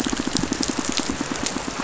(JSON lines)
{"label": "biophony, pulse", "recorder": "SoundTrap 500"}